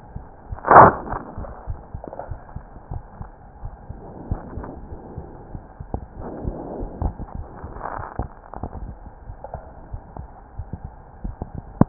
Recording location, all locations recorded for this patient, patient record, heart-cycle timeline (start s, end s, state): aortic valve (AV)
aortic valve (AV)+pulmonary valve (PV)+tricuspid valve (TV)+mitral valve (MV)
#Age: Child
#Sex: Female
#Height: 125.0 cm
#Weight: 23.0 kg
#Pregnancy status: False
#Murmur: Absent
#Murmur locations: nan
#Most audible location: nan
#Systolic murmur timing: nan
#Systolic murmur shape: nan
#Systolic murmur grading: nan
#Systolic murmur pitch: nan
#Systolic murmur quality: nan
#Diastolic murmur timing: nan
#Diastolic murmur shape: nan
#Diastolic murmur grading: nan
#Diastolic murmur pitch: nan
#Diastolic murmur quality: nan
#Outcome: Abnormal
#Campaign: 2015 screening campaign
0.00	2.90	unannotated
2.90	3.04	S1
3.04	3.18	systole
3.18	3.32	S2
3.32	3.62	diastole
3.62	3.72	S1
3.72	3.88	systole
3.88	3.99	S2
3.99	4.26	diastole
4.26	4.40	S1
4.40	4.54	systole
4.54	4.66	S2
4.66	4.88	diastole
4.88	5.00	S1
5.00	5.15	systole
5.15	5.28	S2
5.28	5.52	diastole
5.52	5.62	S1
5.62	5.77	systole
5.77	5.86	S2
5.86	6.16	diastole
6.16	6.27	S1
6.27	6.42	systole
6.42	6.56	S2
6.56	6.77	diastole
6.77	6.90	S1
6.90	7.02	systole
7.02	7.16	S2
7.16	7.36	diastole
7.36	7.48	S1
7.48	7.62	systole
7.62	7.72	S2
7.72	7.96	diastole
7.96	8.06	S1
8.06	8.16	systole
8.16	8.30	S2
8.30	8.58	diastole
8.58	8.70	S1
8.70	8.84	systole
8.84	8.98	S2
8.98	9.26	diastole
9.26	9.38	S1
9.38	9.52	systole
9.52	9.64	S2
9.64	9.90	diastole
9.90	10.02	S1
10.02	10.15	systole
10.15	10.30	S2
10.30	10.56	diastole
10.56	10.68	S1
10.68	10.82	systole
10.82	10.94	S2
10.94	11.22	diastole
11.22	11.36	S1
11.36	11.89	unannotated